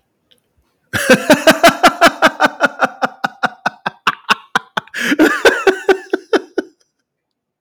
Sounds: Laughter